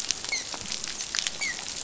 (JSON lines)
{"label": "biophony, dolphin", "recorder": "SoundTrap 500"}